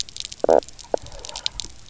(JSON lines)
{"label": "biophony, knock croak", "recorder": "SoundTrap 300"}